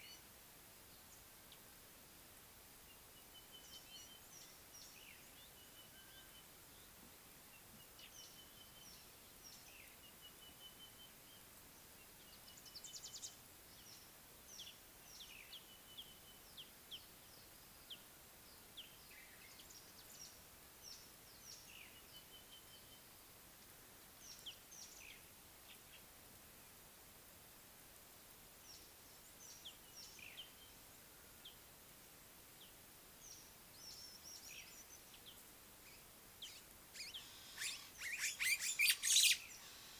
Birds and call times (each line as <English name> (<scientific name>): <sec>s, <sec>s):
Sulphur-breasted Bushshrike (Telophorus sulfureopectus): 10.5s, 22.2s
Scarlet-chested Sunbird (Chalcomitra senegalensis): 16.5s, 31.5s
White-browed Sparrow-Weaver (Plocepasser mahali): 38.6s